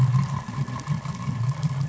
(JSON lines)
{"label": "anthrophony, boat engine", "recorder": "SoundTrap 500"}